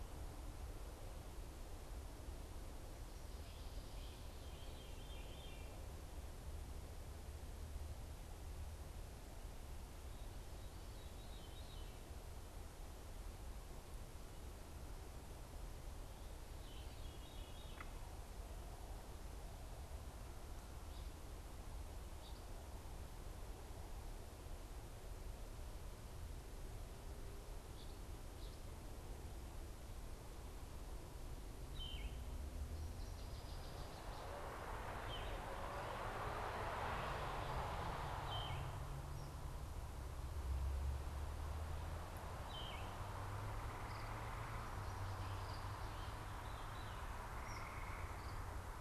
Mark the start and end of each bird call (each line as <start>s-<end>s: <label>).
0.0s-18.0s: Veery (Catharus fuscescens)
21.8s-28.9s: Eastern Phoebe (Sayornis phoebe)
31.4s-43.2s: Yellow-throated Vireo (Vireo flavifrons)
32.7s-34.5s: Northern Waterthrush (Parkesia noveboracensis)
45.6s-47.1s: Veery (Catharus fuscescens)
47.5s-47.7s: unidentified bird